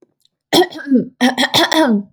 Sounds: Throat clearing